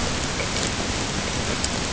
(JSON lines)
{"label": "ambient", "recorder": "HydroMoth"}